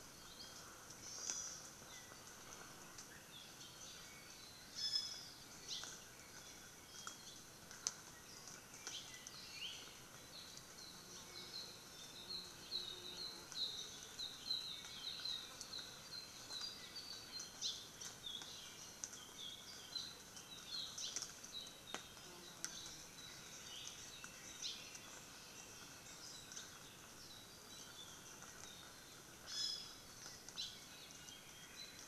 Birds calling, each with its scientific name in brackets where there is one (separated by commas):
Hawaii Creeper (Loxops mana), Apapane (Himatione sanguinea), Hawaii Amakihi (Chlorodrepanis virens), Iiwi (Drepanis coccinea)